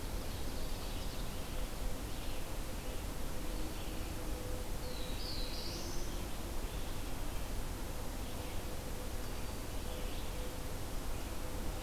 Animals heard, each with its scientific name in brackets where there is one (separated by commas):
Ovenbird (Seiurus aurocapilla), Black-throated Blue Warbler (Setophaga caerulescens), Red-eyed Vireo (Vireo olivaceus)